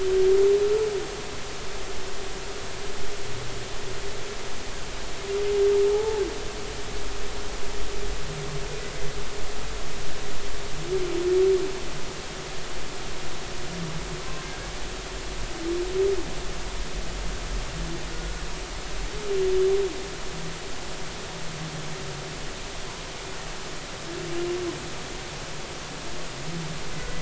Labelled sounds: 5.9	6.2	humpback whale, 0.80 to 0.93 kHz

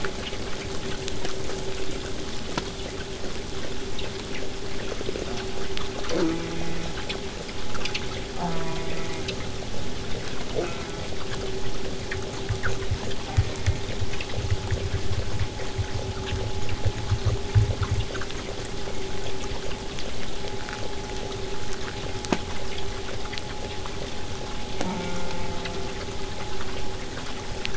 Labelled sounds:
5.1	5.8	killer whale, southern resident, J pod, call S04, 0.11 to 1.1 kHz
6.1	7.0	killer whale, southern resident, J pod, call S04, 0.15 to 2.6 kHz
8.3	9.4	killer whale, southern resident, J pod, call S04, 0.11 to 2.6 kHz
10.5	11.1	killer whale, southern resident, J pod, call S04, 0.15 to 2.8 kHz
13.2	13.9	killer whale, southern resident, J pod, call S04, 0.21 to 2.7 kHz
24.8	26.0	killer whale, southern resident, J pod, call S04, 0.11 to 3.7 kHz

